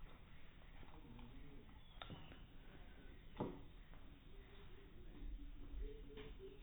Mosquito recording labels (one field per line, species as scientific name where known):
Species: no mosquito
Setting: cup